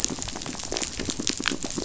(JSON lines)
{"label": "biophony", "recorder": "SoundTrap 500"}